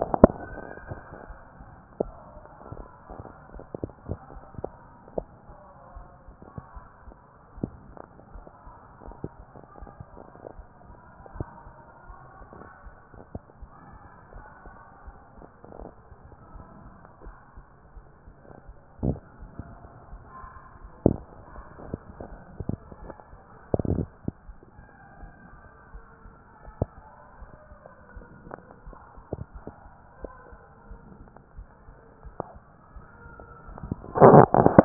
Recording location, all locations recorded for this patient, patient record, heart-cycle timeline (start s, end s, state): mitral valve (MV)
pulmonary valve (PV)+tricuspid valve (TV)+mitral valve (MV)
#Age: nan
#Sex: Female
#Height: nan
#Weight: nan
#Pregnancy status: True
#Murmur: Absent
#Murmur locations: nan
#Most audible location: nan
#Systolic murmur timing: nan
#Systolic murmur shape: nan
#Systolic murmur grading: nan
#Systolic murmur pitch: nan
#Systolic murmur quality: nan
#Diastolic murmur timing: nan
#Diastolic murmur shape: nan
#Diastolic murmur grading: nan
#Diastolic murmur pitch: nan
#Diastolic murmur quality: nan
#Outcome: Normal
#Campaign: 2014 screening campaign
0.00	4.96	unannotated
4.96	5.16	diastole
5.16	5.28	S1
5.28	5.46	systole
5.46	5.56	S2
5.56	5.95	diastole
5.95	6.06	S1
6.06	6.26	systole
6.26	6.36	S2
6.36	6.74	diastole
6.74	6.86	S1
6.86	7.06	systole
7.06	7.14	S2
7.14	7.58	diastole
7.58	7.70	S1
7.70	7.86	systole
7.86	7.98	S2
7.98	8.34	diastole
8.34	8.46	S1
8.46	8.64	systole
8.64	8.74	S2
8.74	9.06	diastole
9.06	9.18	S1
9.18	9.36	systole
9.36	9.46	S2
9.46	9.80	diastole
9.80	9.92	S1
9.92	10.12	systole
10.12	10.22	S2
10.22	10.56	diastole
10.56	10.67	S1
10.67	10.86	systole
10.86	10.96	S2
10.96	11.34	diastole
11.34	34.85	unannotated